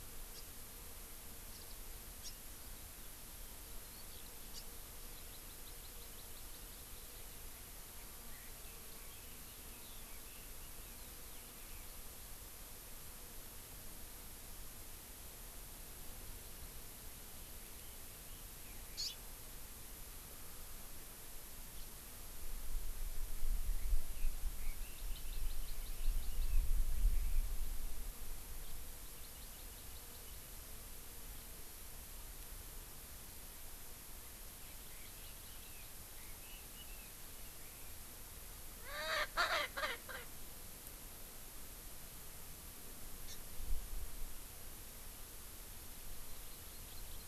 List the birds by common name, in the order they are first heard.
House Finch, Warbling White-eye, Eurasian Skylark, Hawaii Amakihi, Red-billed Leiothrix, Erckel's Francolin